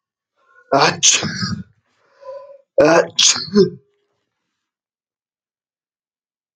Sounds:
Sneeze